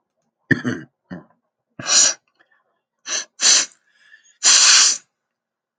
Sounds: Sniff